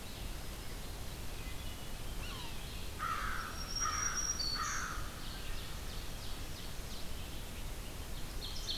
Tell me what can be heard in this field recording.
Red-eyed Vireo, Wood Thrush, Yellow-bellied Sapsucker, American Crow, Black-throated Green Warbler, Ovenbird